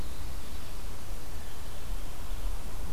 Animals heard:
forest ambience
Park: Marsh-Billings-Rockefeller National Historical Park